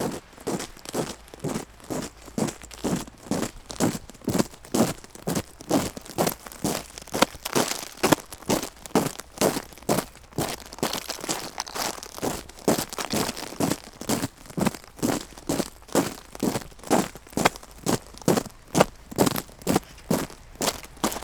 Is the person getting closer?
yes